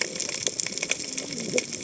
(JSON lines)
{"label": "biophony, cascading saw", "recorder": "HydroMoth"}